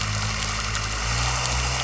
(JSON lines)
{"label": "anthrophony, boat engine", "recorder": "SoundTrap 300"}